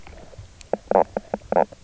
{"label": "biophony, knock croak", "recorder": "SoundTrap 300"}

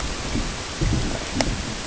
{"label": "ambient", "recorder": "HydroMoth"}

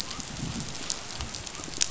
{"label": "biophony", "recorder": "SoundTrap 500"}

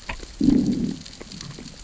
{"label": "biophony, growl", "recorder": "SoundTrap 600 or HydroMoth"}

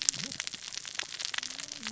{"label": "biophony, cascading saw", "recorder": "SoundTrap 600 or HydroMoth"}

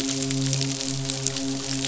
{"label": "biophony, midshipman", "recorder": "SoundTrap 500"}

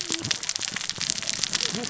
{"label": "biophony, cascading saw", "recorder": "SoundTrap 600 or HydroMoth"}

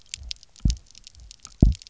{"label": "biophony, double pulse", "recorder": "SoundTrap 300"}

